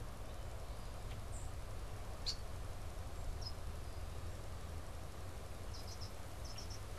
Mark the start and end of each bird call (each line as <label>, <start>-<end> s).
unidentified bird, 1.2-1.7 s
Red-winged Blackbird (Agelaius phoeniceus), 1.9-2.8 s
unidentified bird, 3.2-7.0 s